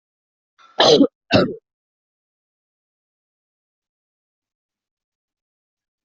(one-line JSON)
{"expert_labels": [{"quality": "good", "cough_type": "wet", "dyspnea": false, "wheezing": false, "stridor": false, "choking": false, "congestion": false, "nothing": true, "diagnosis": "healthy cough", "severity": "pseudocough/healthy cough"}], "age": 42, "gender": "female", "respiratory_condition": true, "fever_muscle_pain": false, "status": "symptomatic"}